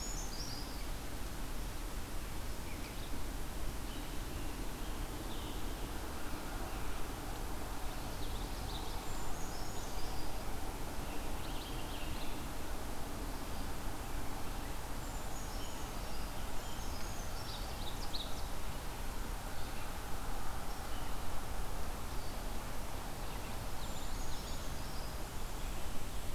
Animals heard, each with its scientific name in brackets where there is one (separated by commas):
Purple Finch (Haemorhous purpureus), Scarlet Tanager (Piranga olivacea), Brown Creeper (Certhia americana), Red-eyed Vireo (Vireo olivaceus), Common Yellowthroat (Geothlypis trichas), Ovenbird (Seiurus aurocapilla)